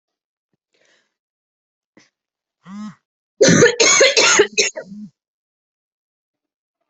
{"expert_labels": [{"quality": "ok", "cough_type": "wet", "dyspnea": false, "wheezing": false, "stridor": false, "choking": false, "congestion": false, "nothing": true, "diagnosis": "lower respiratory tract infection", "severity": "mild"}], "age": 32, "gender": "female", "respiratory_condition": true, "fever_muscle_pain": false, "status": "symptomatic"}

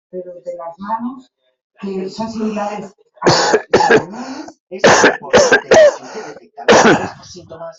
{"expert_labels": [{"quality": "good", "cough_type": "wet", "dyspnea": false, "wheezing": false, "stridor": false, "choking": false, "congestion": false, "nothing": true, "diagnosis": "upper respiratory tract infection", "severity": "mild"}]}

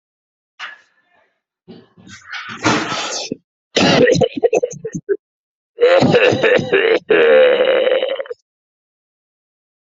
{"expert_labels": [{"quality": "ok", "cough_type": "dry", "dyspnea": true, "wheezing": false, "stridor": false, "choking": true, "congestion": false, "nothing": false, "diagnosis": "lower respiratory tract infection", "severity": "severe"}], "age": 38, "gender": "male", "respiratory_condition": false, "fever_muscle_pain": true, "status": "healthy"}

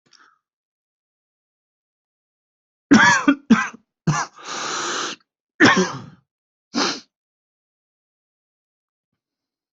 {"expert_labels": [{"quality": "good", "cough_type": "wet", "dyspnea": false, "wheezing": false, "stridor": false, "choking": false, "congestion": true, "nothing": true, "diagnosis": "upper respiratory tract infection", "severity": "mild"}], "age": 23, "gender": "male", "respiratory_condition": false, "fever_muscle_pain": false, "status": "COVID-19"}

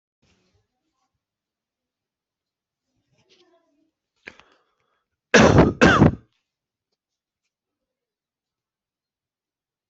{"expert_labels": [{"quality": "good", "cough_type": "dry", "dyspnea": false, "wheezing": false, "stridor": false, "choking": false, "congestion": false, "nothing": true, "diagnosis": "upper respiratory tract infection", "severity": "unknown"}]}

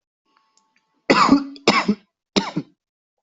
{"expert_labels": [{"quality": "ok", "cough_type": "wet", "dyspnea": false, "wheezing": false, "stridor": false, "choking": false, "congestion": false, "nothing": true, "diagnosis": "lower respiratory tract infection", "severity": "mild"}], "age": 32, "gender": "male", "respiratory_condition": false, "fever_muscle_pain": true, "status": "symptomatic"}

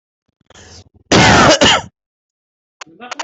{"expert_labels": [{"quality": "ok", "cough_type": "dry", "dyspnea": false, "wheezing": false, "stridor": false, "choking": false, "congestion": false, "nothing": true, "diagnosis": "upper respiratory tract infection", "severity": "unknown"}], "gender": "female", "respiratory_condition": false, "fever_muscle_pain": false, "status": "COVID-19"}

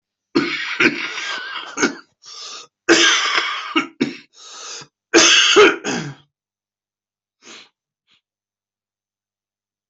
{"expert_labels": [{"quality": "good", "cough_type": "wet", "dyspnea": false, "wheezing": false, "stridor": false, "choking": false, "congestion": false, "nothing": true, "diagnosis": "lower respiratory tract infection", "severity": "severe"}], "age": 39, "gender": "male", "respiratory_condition": true, "fever_muscle_pain": false, "status": "symptomatic"}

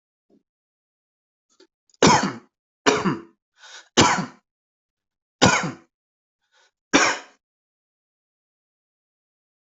{"expert_labels": [{"quality": "ok", "cough_type": "dry", "dyspnea": false, "wheezing": false, "stridor": false, "choking": false, "congestion": false, "nothing": false, "diagnosis": "COVID-19", "severity": "mild"}]}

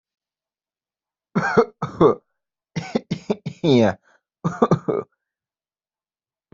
{"expert_labels": [{"quality": "ok", "cough_type": "unknown", "dyspnea": false, "wheezing": false, "stridor": false, "choking": false, "congestion": false, "nothing": true, "diagnosis": "upper respiratory tract infection", "severity": "mild"}], "age": 23, "gender": "male", "respiratory_condition": false, "fever_muscle_pain": false, "status": "healthy"}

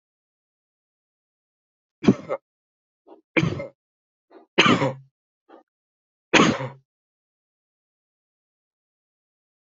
{"expert_labels": [{"quality": "ok", "cough_type": "dry", "dyspnea": false, "wheezing": false, "stridor": false, "choking": false, "congestion": false, "nothing": true, "diagnosis": "COVID-19", "severity": "unknown"}]}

